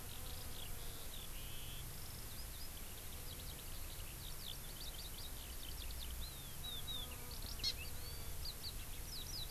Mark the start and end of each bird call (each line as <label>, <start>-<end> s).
Eurasian Skylark (Alauda arvensis), 0.0-9.5 s
Hawaii Amakihi (Chlorodrepanis virens), 7.6-7.7 s